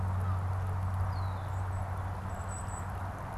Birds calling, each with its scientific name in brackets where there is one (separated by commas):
Red-winged Blackbird (Agelaius phoeniceus), Golden-crowned Kinglet (Regulus satrapa)